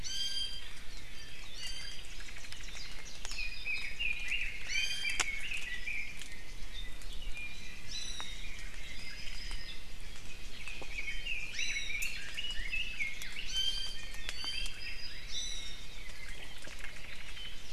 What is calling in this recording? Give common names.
Iiwi, Omao, Warbling White-eye, Red-billed Leiothrix, Apapane